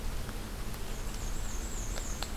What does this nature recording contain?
Black-and-white Warbler